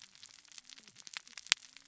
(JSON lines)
{"label": "biophony, cascading saw", "recorder": "SoundTrap 600 or HydroMoth"}